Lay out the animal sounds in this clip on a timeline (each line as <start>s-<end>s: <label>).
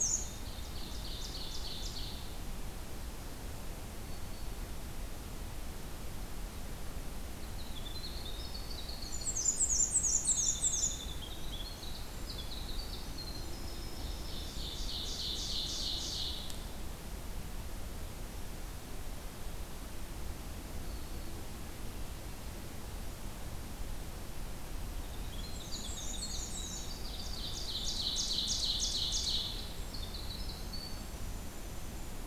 0.0s-2.3s: Ovenbird (Seiurus aurocapilla)
3.9s-4.7s: Black-throated Green Warbler (Setophaga virens)
7.4s-9.7s: Winter Wren (Troglodytes hiemalis)
9.0s-11.0s: Black-and-white Warbler (Mniotilta varia)
10.2s-14.7s: Winter Wren (Troglodytes hiemalis)
14.0s-16.5s: Ovenbird (Seiurus aurocapilla)
20.7s-21.4s: Black-throated Green Warbler (Setophaga virens)
25.0s-32.3s: Winter Wren (Troglodytes hiemalis)
25.4s-26.9s: Black-and-white Warbler (Mniotilta varia)
26.9s-29.5s: Ovenbird (Seiurus aurocapilla)